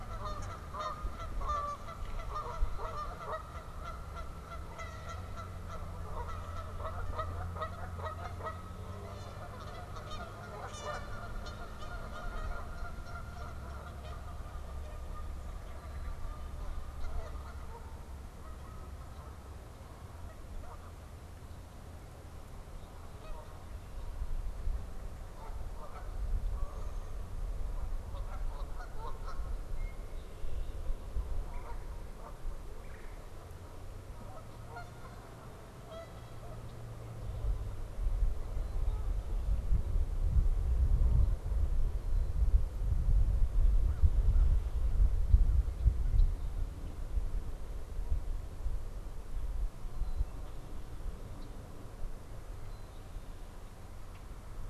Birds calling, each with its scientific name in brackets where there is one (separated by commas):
Common Grackle (Quiscalus quiscula), Canada Goose (Branta canadensis), Red-winged Blackbird (Agelaius phoeniceus), American Crow (Corvus brachyrhynchos)